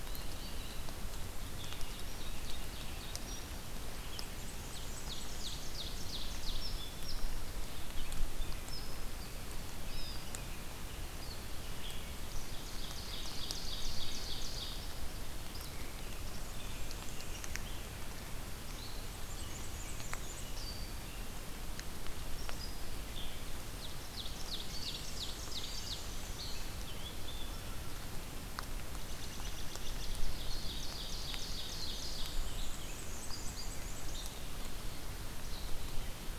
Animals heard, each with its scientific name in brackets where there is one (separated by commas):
Ovenbird (Seiurus aurocapilla), Black-and-white Warbler (Mniotilta varia), American Robin (Turdus migratorius), Veery (Catharus fuscescens), Blue Jay (Cyanocitta cristata), Rose-breasted Grosbeak (Pheucticus ludovicianus), unidentified call